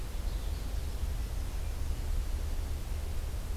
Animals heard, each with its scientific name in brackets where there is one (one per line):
Yellow-rumped Warbler (Setophaga coronata)